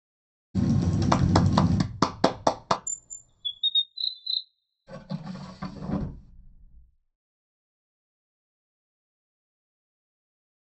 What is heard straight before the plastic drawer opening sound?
chirp